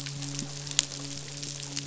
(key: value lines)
label: biophony, midshipman
recorder: SoundTrap 500